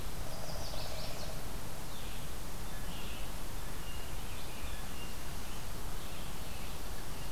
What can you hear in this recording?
unknown woodpecker, Chestnut-sided Warbler